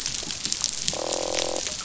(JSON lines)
{"label": "biophony, croak", "recorder": "SoundTrap 500"}